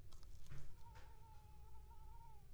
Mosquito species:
Culex pipiens complex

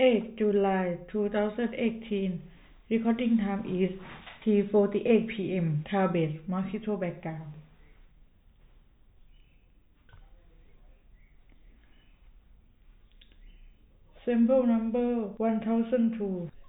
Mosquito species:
no mosquito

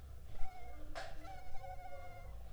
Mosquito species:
Culex pipiens complex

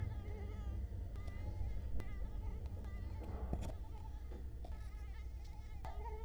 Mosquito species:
Culex quinquefasciatus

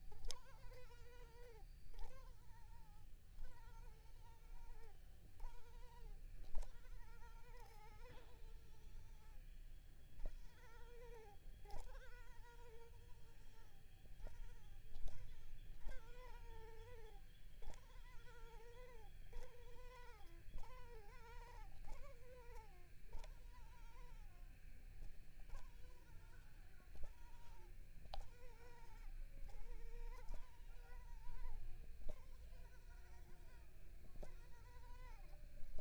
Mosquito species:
Culex pipiens complex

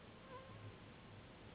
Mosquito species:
Anopheles gambiae s.s.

